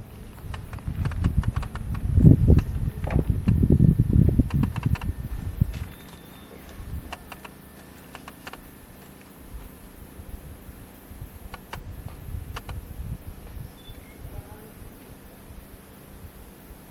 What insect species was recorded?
Yoyetta spectabilis